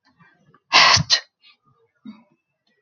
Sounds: Sneeze